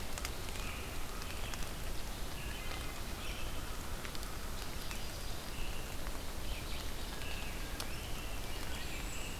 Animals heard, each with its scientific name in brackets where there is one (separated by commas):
Wood Thrush (Hylocichla mustelina), Red-eyed Vireo (Vireo olivaceus), American Robin (Turdus migratorius), unidentified call, Yellow-rumped Warbler (Setophaga coronata), American Crow (Corvus brachyrhynchos)